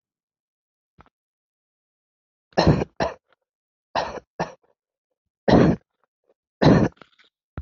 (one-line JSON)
{"expert_labels": [{"quality": "good", "cough_type": "dry", "dyspnea": false, "wheezing": false, "stridor": false, "choking": false, "congestion": false, "nothing": true, "diagnosis": "obstructive lung disease", "severity": "mild"}], "age": 18, "gender": "male", "respiratory_condition": false, "fever_muscle_pain": false, "status": "healthy"}